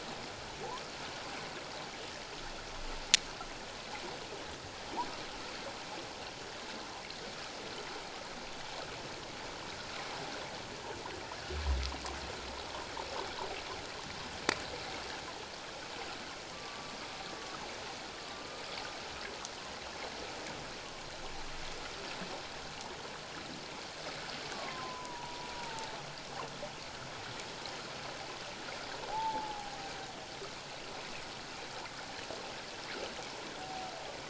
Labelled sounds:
16.5	17.0	humpback whale, 1.0 to 1.2 kHz
18.1	18.6	humpback whale, 1.1 to 1.2 kHz
24.5	25.9	humpback whale, 0.84 to 1.2 kHz
29.1	29.7	humpback whale, 0.78 to 0.97 kHz

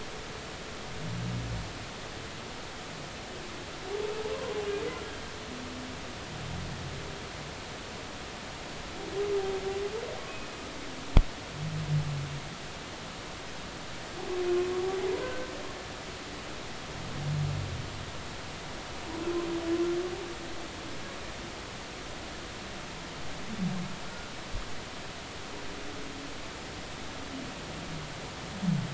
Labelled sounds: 4.3	4.6	humpback whale, 0.96 to 1.1 kHz
15.2	15.5	humpback whale, 1.5 to 1.6 kHz

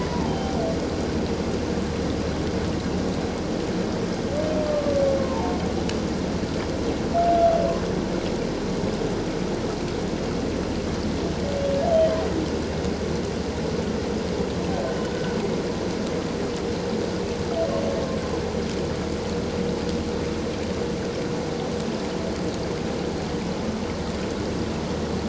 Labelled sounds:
0.1	0.6	humpback whale, 0.78 to 1.0 kHz
5.2	5.5	humpback whale, 0.84 to 1.1 kHz
11.9	12.2	humpback whale, 3.0 to 3.2 kHz

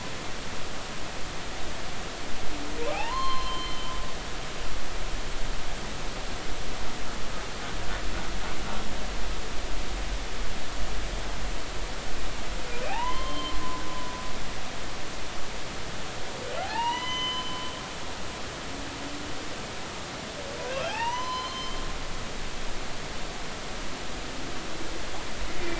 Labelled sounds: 2.9	3.9	humpback whale, 0.80 to 4.3 kHz
12.8	13.6	humpback whale, 0.80 to 3.2 kHz
16.6	17.5	humpback whale, 0.80 to 6.1 kHz
20.7	21.9	humpback whale, 0.80 to 6.1 kHz

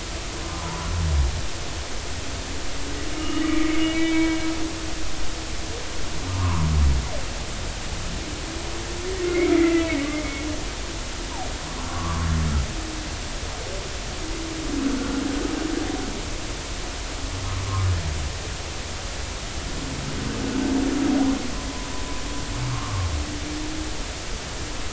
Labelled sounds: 0.4	0.7	humpback whale, 0.96 to 1.1 kHz
3.1	4.4	humpback whale, 1.2 to 2.9 kHz
6.3	6.7	humpback whale, 0.86 to 1.3 kHz
9.2	10.1	humpback whale, 1.3 to 2.8 kHz
11.8	12.3	humpback whale, 0.96 to 1.2 kHz
22.7	23.1	humpback whale, 1.0 to 1.4 kHz

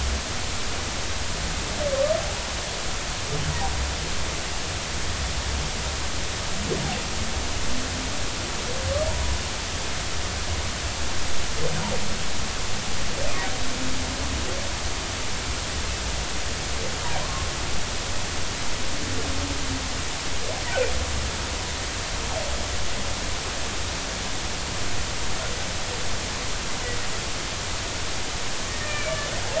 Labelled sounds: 17.2	17.5	humpback whale, 0.93 to 1.1 kHz
28.7	29.1	humpback whale, 1.7 to 2.5 kHz

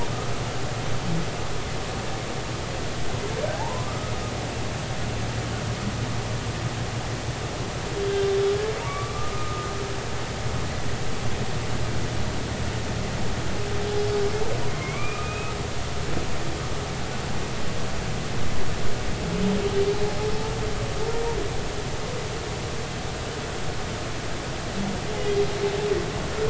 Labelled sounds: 3.5	4.1	humpback whale, 0.80 to 1.3 kHz
8.8	9.7	humpback whale, 1.1 to 1.3 kHz
14.7	15.5	humpback whale, 0.99 to 2.6 kHz

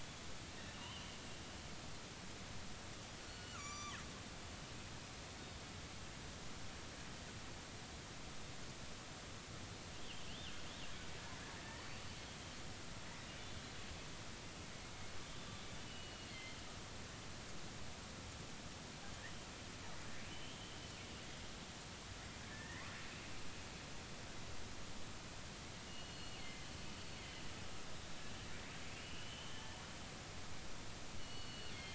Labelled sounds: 0.7	1.2	killer whale, northern resident, G clan, 2.7 to 3.2 kHz
3.2	4.0	killer whale, northern resident, G clan, GG subclan, call N23ii, 1.0 to 7.1 kHz
10.0	10.2	killer whale, northern resident, 2.7 to 3.5 kHz
15.4	15.7	killer whale, northern resident, 3.5 to 3.6 kHz
15.9	16.6	killer whale, northern resident, G clan, GG subclan, call N23ii, 2.0 to 3.0 kHz
20.3	20.6	killer whale, northern resident, R clan, call N32i, 2.9 to 3.1 kHz
22.5	22.9	killer whale, northern resident, R clan, call N32ii, 1.6 to 2.1 kHz
25.9	26.7	killer whale, northern resident, G clan, GG subclan, call N23ii, 1.9 to 4.4 kHz
28.9	29.6	killer whale, northern resident, R clan, call N32i, 2.6 to 3.2 kHz
29.5	29.8	killer whale, northern resident, R clan, call N33, 0.83 to 1.8 kHz
31.2	31.9	killer whale, northern resident, G clan, GG subclan, call N23ii, 2.7 to 4.5 kHz

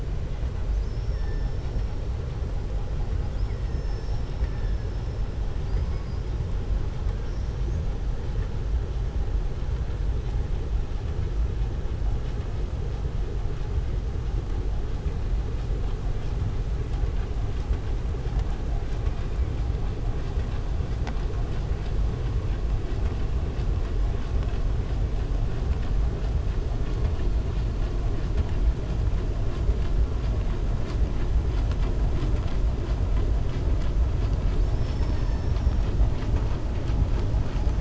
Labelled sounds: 5.6	6.3	killer whale, southern resident, 4.6 to 5.2 kHz

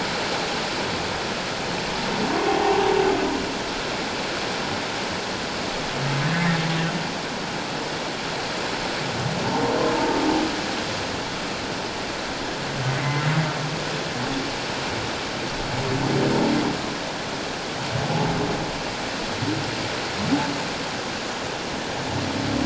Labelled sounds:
2.5	2.8	humpback whale, 0.78 to 1.2 kHz
6.3	6.6	humpback whale, 1.6 to 1.9 kHz
18.0	18.3	humpback whale, 0.78 to 0.91 kHz

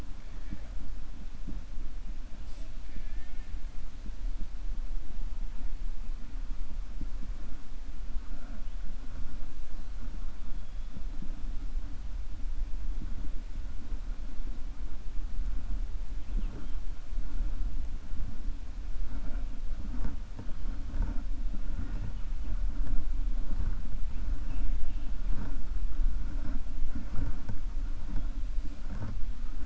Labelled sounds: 2.8	3.5	killer whale, 1.5 to 3.4 kHz

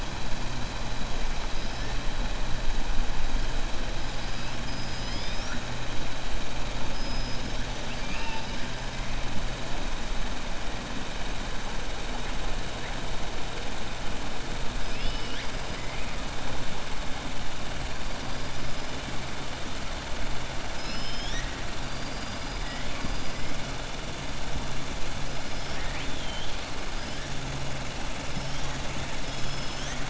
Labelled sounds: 6.9	8.6	killer whale, 0.89 to 5.7 kHz
21.8	22.8	killer whale, 4.7 to 5.8 kHz
25.6	26.6	killer whale, 1.7 to 4.0 kHz
28.3	28.7	killer whale, 5.1 to 6.6 kHz
29.2	30.0	killer whale, 1.8 to 6.9 kHz

